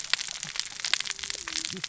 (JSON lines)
{"label": "biophony, cascading saw", "recorder": "SoundTrap 600 or HydroMoth"}